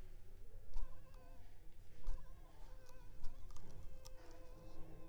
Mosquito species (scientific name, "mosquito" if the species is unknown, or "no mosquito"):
Anopheles funestus s.l.